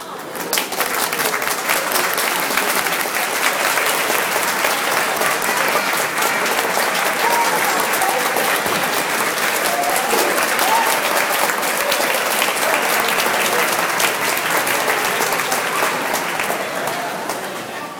does the clapping die down?
yes